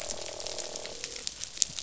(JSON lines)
{"label": "biophony, croak", "recorder": "SoundTrap 500"}